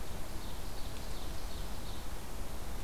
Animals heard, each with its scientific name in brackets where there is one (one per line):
Ovenbird (Seiurus aurocapilla)